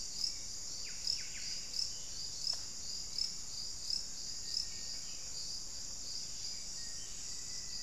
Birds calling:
Black-faced Antthrush (Formicarius analis), Little Tinamou (Crypturellus soui), Hauxwell's Thrush (Turdus hauxwelli), Buff-breasted Wren (Cantorchilus leucotis)

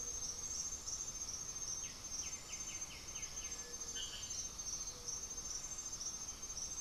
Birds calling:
Cinereous Tinamou (Crypturellus cinereus), Gray-fronted Dove (Leptotila rufaxilla), White-winged Becard (Pachyramphus polychopterus)

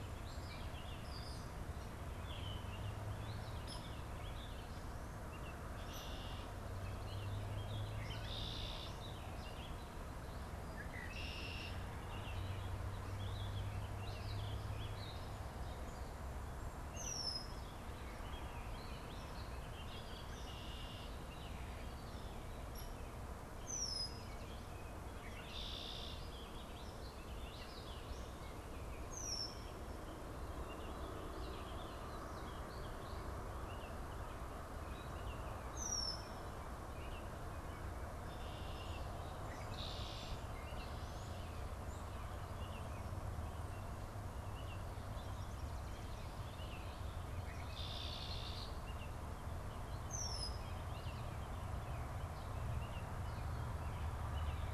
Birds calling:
Red-winged Blackbird (Agelaius phoeniceus), Hairy Woodpecker (Dryobates villosus), Baltimore Oriole (Icterus galbula), Warbling Vireo (Vireo gilvus)

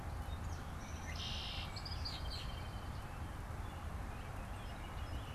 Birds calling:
Red-winged Blackbird (Agelaius phoeniceus), Song Sparrow (Melospiza melodia), American Robin (Turdus migratorius), Northern Flicker (Colaptes auratus)

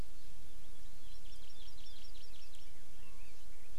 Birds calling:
Chinese Hwamei (Garrulax canorus), Hawaii Amakihi (Chlorodrepanis virens)

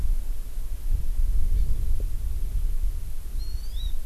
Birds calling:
Hawaii Amakihi (Chlorodrepanis virens)

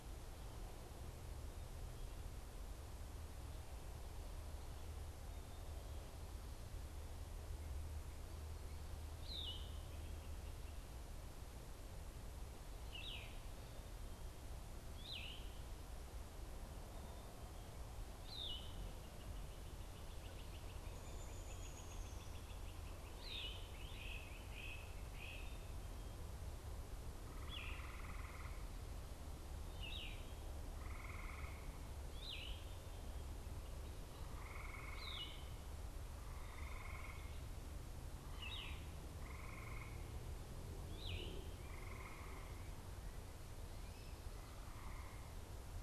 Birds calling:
Great Crested Flycatcher (Myiarchus crinitus), Yellow-throated Vireo (Vireo flavifrons), Downy Woodpecker (Dryobates pubescens)

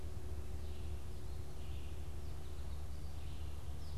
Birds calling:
American Goldfinch (Spinus tristis), Red-eyed Vireo (Vireo olivaceus)

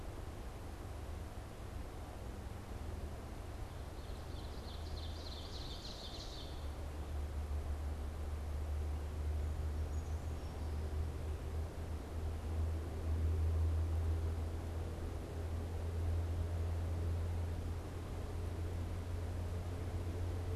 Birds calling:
Brown Creeper (Certhia americana), Ovenbird (Seiurus aurocapilla)

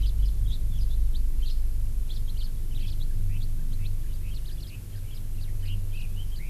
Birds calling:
House Finch (Haemorhous mexicanus), Red-billed Leiothrix (Leiothrix lutea)

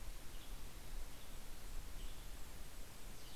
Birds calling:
Golden-crowned Kinglet (Regulus satrapa), Mountain Chickadee (Poecile gambeli), Western Tanager (Piranga ludoviciana)

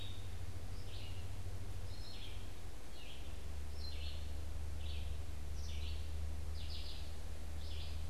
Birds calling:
Red-eyed Vireo (Vireo olivaceus)

